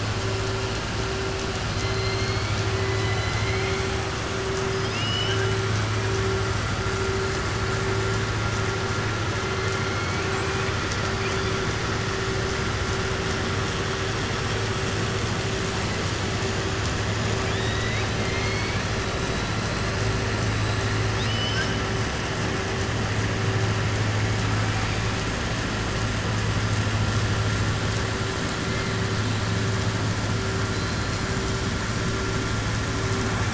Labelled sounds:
1.7	2.6	killer whale, southern resident, 1.2 to 4.9 kHz
4.7	5.5	killer whale, southern resident, 1.6 to 5.6 kHz
9.9	10.8	killer whale, southern resident, 1.6 to 3.1 kHz
17.4	18.8	killer whale, southern resident, 1.7 to 4.6 kHz
21.1	21.8	killer whale, southern resident, 1.5 to 6.0 kHz
30.7	31.2	killer whale, southern resident, 4.0 to 5.2 kHz

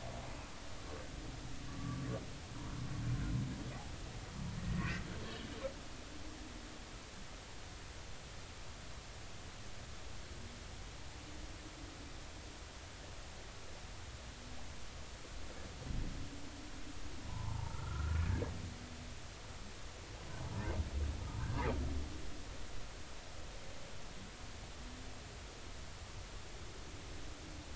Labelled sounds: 1.7	2.1	humpback whale, 1.1 to 1.2 kHz
4.7	5.5	humpback whale, 1.8 to 3.4 kHz
17.3	18.3	humpback whale, 0.83 to 1.5 kHz

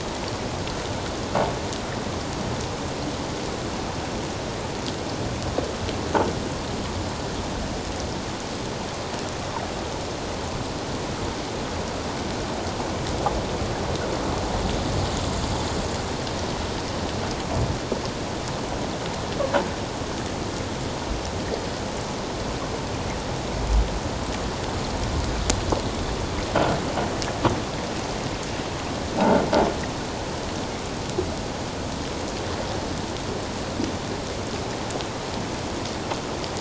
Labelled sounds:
29.2	29.4	croaking sound likely from a nearby submerged object, 1.3 to 1.6 kHz

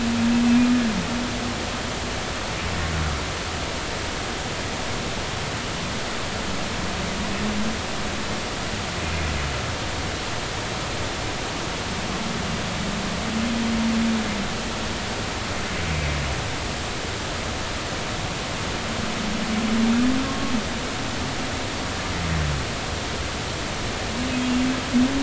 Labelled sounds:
20.2	20.5	humpback whale, 1.0 to 1.1 kHz

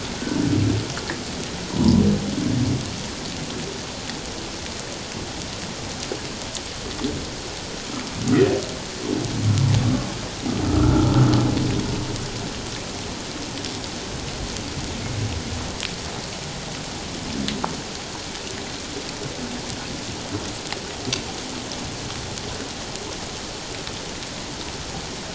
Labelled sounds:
1.7	2.0	humpback whale, 0.84 to 1.1 kHz
10.6	11.2	humpback whale, 1.1 to 1.5 kHz

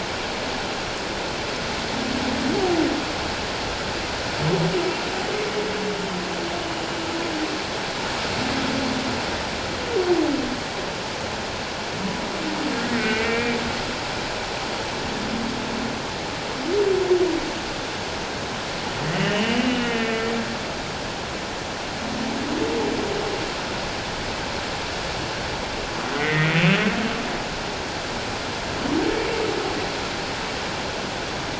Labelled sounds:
12.9	13.6	humpback whale, 1.5 to 2.6 kHz
19.1	20.2	humpback whale, 1.8 to 3.1 kHz
26.2	26.6	humpback whale, 1.8 to 2.2 kHz

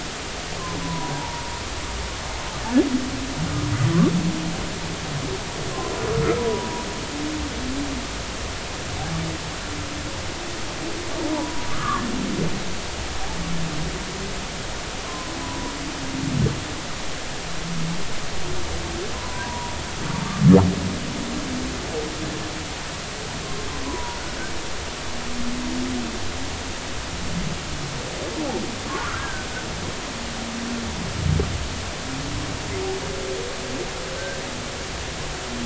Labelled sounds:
0.8	1.4	humpback whale, 0.80 to 1.1 kHz
6.4	6.7	humpback whale, 0.90 to 1.0 kHz
11.3	12.1	humpback whale, 0.83 to 1.8 kHz
15.0	15.7	humpback whale, 0.93 to 1.1 kHz
19.1	19.7	humpback whale, 0.90 to 1.1 kHz
23.8	24.2	humpback whale, 0.90 to 1.1 kHz
28.9	29.5	humpback whale, 0.86 to 1.7 kHz

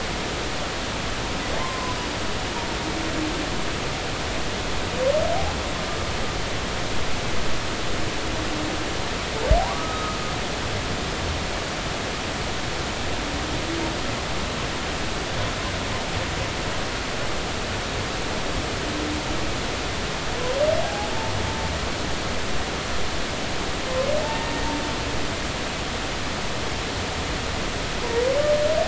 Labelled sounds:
1.6	2.0	humpback whale, 0.96 to 1.2 kHz
9.8	10.2	humpback whale, 1.2 to 1.3 kHz
20.8	21.1	humpback whale, 0.80 to 0.90 kHz
24.2	24.5	humpback whale, 0.83 to 1.9 kHz

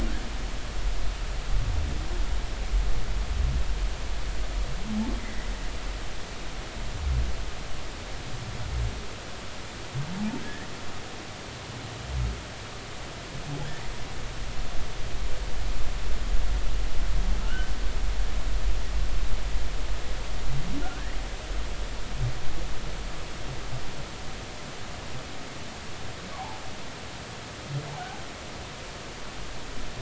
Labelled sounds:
5.2	5.5	humpback whale, 1.8 to 2.1 kHz
10.4	10.7	humpback whale, 1.6 to 1.9 kHz
17.4	17.7	humpback whale, 1.2 to 1.6 kHz
20.8	21.2	humpback whale, 1.3 to 2.0 kHz
26.3	26.6	humpback whale, 0.80 to 1.2 kHz

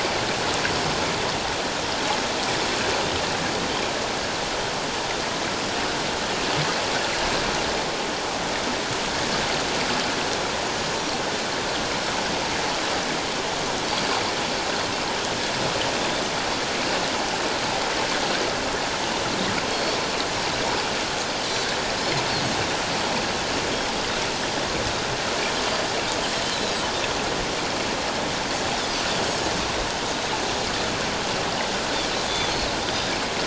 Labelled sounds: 19.7	20.0	Pacific white-sided dolphin, 4.2 to 4.5 kHz
26.5	26.9	Pacific white-sided dolphin, 7.6 to 8.0 kHz
32.3	32.7	Pacific white-sided dolphin, 3.3 to 4.4 kHz

